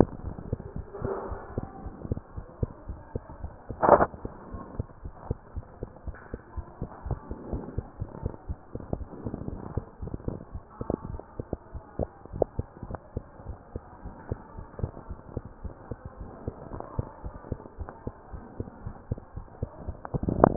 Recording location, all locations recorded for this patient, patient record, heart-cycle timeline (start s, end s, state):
mitral valve (MV)
aortic valve (AV)+pulmonary valve (PV)+tricuspid valve (TV)+mitral valve (MV)
#Age: Child
#Sex: Female
#Height: 95.0 cm
#Weight: 17.5 kg
#Pregnancy status: False
#Murmur: Absent
#Murmur locations: nan
#Most audible location: nan
#Systolic murmur timing: nan
#Systolic murmur shape: nan
#Systolic murmur grading: nan
#Systolic murmur pitch: nan
#Systolic murmur quality: nan
#Diastolic murmur timing: nan
#Diastolic murmur shape: nan
#Diastolic murmur grading: nan
#Diastolic murmur pitch: nan
#Diastolic murmur quality: nan
#Outcome: Normal
#Campaign: 2015 screening campaign
0.00	12.56	unannotated
12.56	12.68	S2
12.68	12.84	diastole
12.84	12.98	S1
12.98	13.12	systole
13.12	13.26	S2
13.26	13.46	diastole
13.46	13.58	S1
13.58	13.74	systole
13.74	13.84	S2
13.84	14.04	diastole
14.04	14.14	S1
14.14	14.28	systole
14.28	14.40	S2
14.40	14.56	diastole
14.56	14.66	S1
14.66	14.78	systole
14.78	14.92	S2
14.92	15.08	diastole
15.08	15.18	S1
15.18	15.34	systole
15.34	15.44	S2
15.44	15.62	diastole
15.62	15.74	S1
15.74	15.90	systole
15.90	15.98	S2
15.98	16.18	diastole
16.18	16.30	S1
16.30	16.46	systole
16.46	16.56	S2
16.56	16.72	diastole
16.72	16.84	S1
16.84	16.96	systole
16.96	17.06	S2
17.06	17.24	diastole
17.24	17.34	S1
17.34	17.50	systole
17.50	17.64	S2
17.64	17.80	diastole
17.80	17.90	S1
17.90	18.02	systole
18.02	18.14	S2
18.14	18.32	diastole
18.32	18.42	S1
18.42	18.58	systole
18.58	18.68	S2
18.68	18.84	diastole
18.84	18.96	S1
18.96	19.10	systole
19.10	19.22	S2
19.22	19.36	diastole
19.36	19.46	S1
19.46	19.58	systole
19.58	19.70	S2
19.70	19.78	diastole
19.78	20.56	unannotated